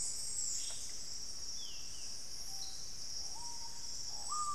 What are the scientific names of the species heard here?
Conopophaga peruviana, Lipaugus vociferans